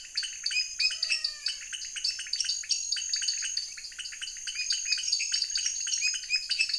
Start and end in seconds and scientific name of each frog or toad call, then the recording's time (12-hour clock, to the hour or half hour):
0.0	6.7	Dendropsophus nanus
0.0	6.7	Leptodactylus podicipinus
0.8	1.8	Physalaemus albonotatus
7pm